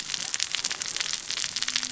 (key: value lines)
label: biophony, cascading saw
recorder: SoundTrap 600 or HydroMoth